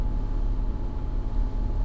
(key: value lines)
label: anthrophony, boat engine
recorder: SoundTrap 300